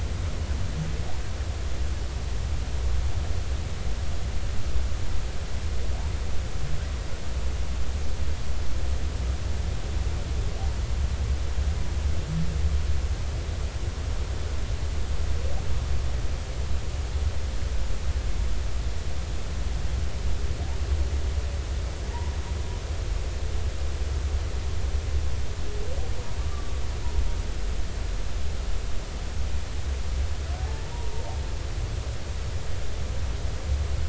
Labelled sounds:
26.4	26.8	humpback whale, 1.1 to 1.2 kHz
30.9	31.2	humpback whale, 0.86 to 0.99 kHz

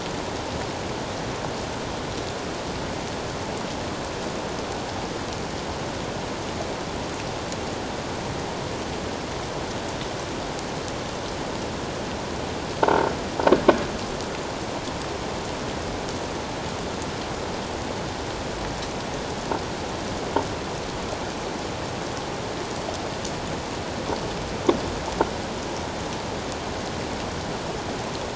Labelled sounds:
12.8	13.1	croaking sound likely from a nearby submerged object, 0.88 to 0.94 kHz

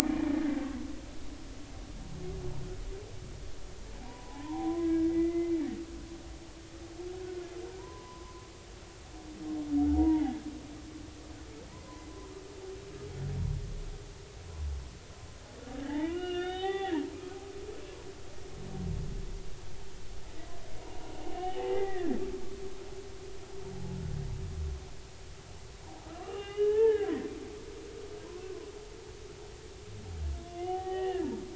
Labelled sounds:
0.0	0.3	humpback whale, 2.2 to 2.5 kHz
4.0	5.5	humpback whale, 0.80 to 2.1 kHz
7.8	8.4	humpback whale, 0.83 to 1.1 kHz
9.9	10.4	humpback whale, 0.80 to 0.99 kHz
11.7	12.1	humpback whale, 0.93 to 1.1 kHz
15.8	17.4	humpback whale, 0.80 to 3.8 kHz
21.3	22.2	humpback whale, 0.80 to 3.1 kHz
26.1	27.1	humpback whale, 0.83 to 3.0 kHz
30.5	31.4	humpback whale, 0.80 to 3.1 kHz

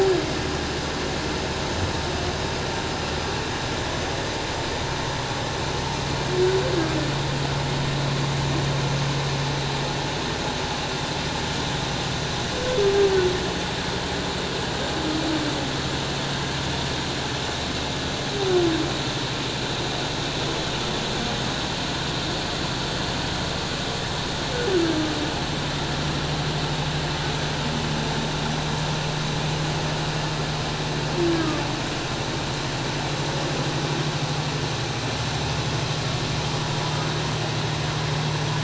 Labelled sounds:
31.4	31.6	humpback whale, 1.1 to 1.3 kHz

